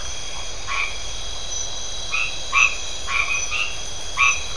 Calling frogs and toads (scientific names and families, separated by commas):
Boana albomarginata (Hylidae)